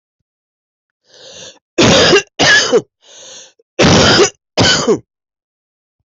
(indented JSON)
{
  "expert_labels": [
    {
      "quality": "good",
      "cough_type": "wet",
      "dyspnea": false,
      "wheezing": false,
      "stridor": false,
      "choking": false,
      "congestion": false,
      "nothing": true,
      "diagnosis": "upper respiratory tract infection",
      "severity": "mild"
    }
  ],
  "age": 48,
  "gender": "female",
  "respiratory_condition": true,
  "fever_muscle_pain": false,
  "status": "COVID-19"
}